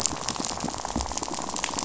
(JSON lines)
{"label": "biophony, rattle", "recorder": "SoundTrap 500"}